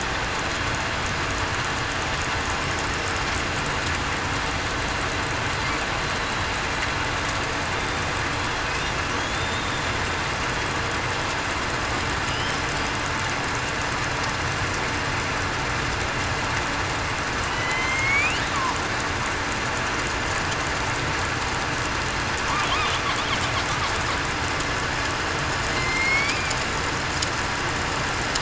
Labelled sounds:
17.4	18.0	killer whale, southern resident, 2.9 to 3.2 kHz
25.7	26.4	killer whale, southern resident, 2.0 to 4.7 kHz

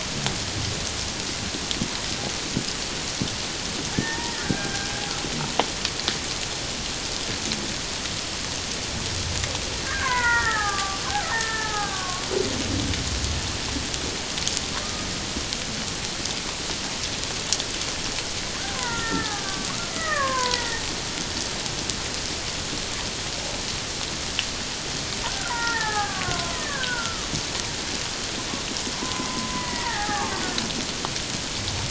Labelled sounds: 3.9	4.9	killer whale, Bigg's (transient), 0.88 to 1.9 kHz
9.8	12.3	killer whale, Bigg's (transient), 0.78 to 2.2 kHz
18.8	20.9	killer whale, Bigg's (transient), 0.84 to 2.1 kHz
25.3	27.3	killer whale, Bigg's (transient), 0.78 to 2.0 kHz
29.0	30.4	killer whale, Bigg's (transient), 0.78 to 2.0 kHz

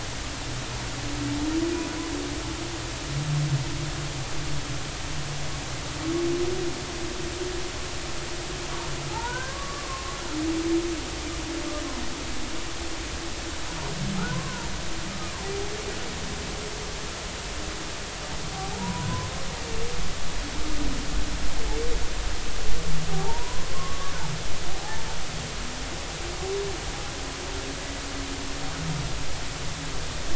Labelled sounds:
9.1	10.1	humpback whale, 0.80 to 1.7 kHz
14.3	14.7	humpback whale, 0.90 to 1.2 kHz
18.5	19.3	humpback whale, 0.80 to 1.1 kHz
23.1	24.1	humpback whale, 0.80 to 1.2 kHz
24.8	25.0	humpback whale, 0.80 to 0.93 kHz

